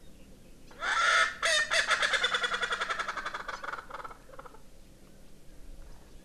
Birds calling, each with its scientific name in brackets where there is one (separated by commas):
Erckel's Francolin (Pternistis erckelii)